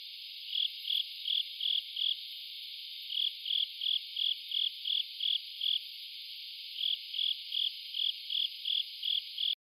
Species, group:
Velarifictorus micado, Orthoptera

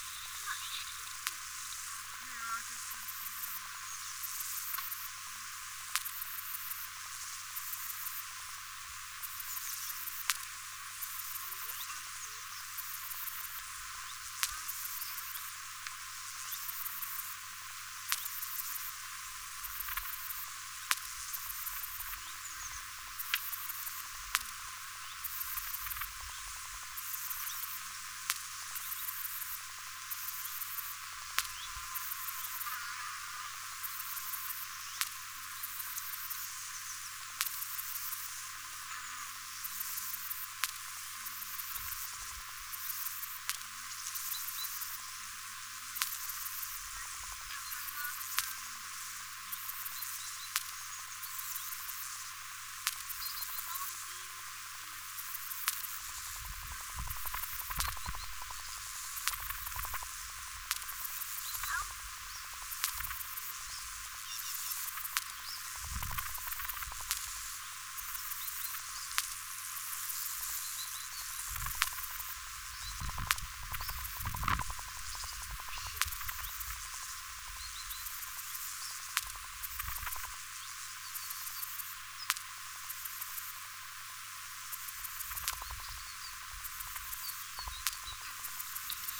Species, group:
Poecilimon superbus, Orthoptera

